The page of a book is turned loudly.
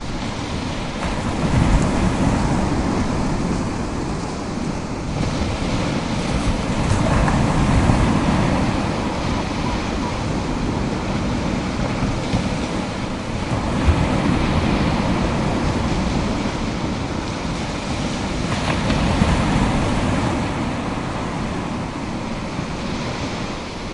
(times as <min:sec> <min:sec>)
0:18.3 0:19.2